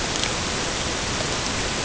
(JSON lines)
{"label": "ambient", "recorder": "HydroMoth"}